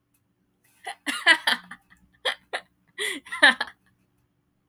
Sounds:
Laughter